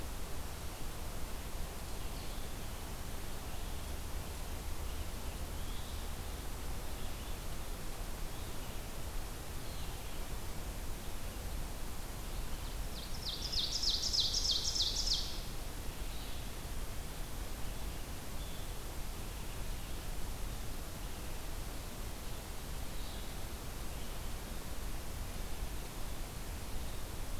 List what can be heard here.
Red-eyed Vireo, Ovenbird